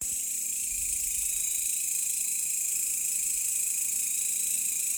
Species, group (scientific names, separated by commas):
Mecopoda elongata, Orthoptera